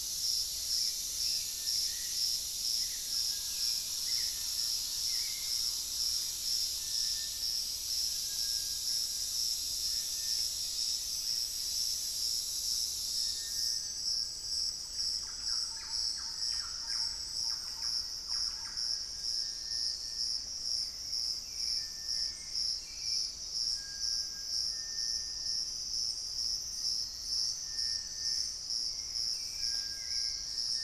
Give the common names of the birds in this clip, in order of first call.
Gray Antbird, Hauxwell's Thrush, Thrush-like Wren, Screaming Piha, Ringed Woodpecker